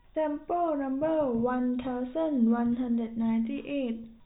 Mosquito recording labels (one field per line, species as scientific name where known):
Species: no mosquito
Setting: cup